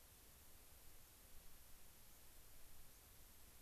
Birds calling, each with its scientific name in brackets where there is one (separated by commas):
White-crowned Sparrow (Zonotrichia leucophrys), unidentified bird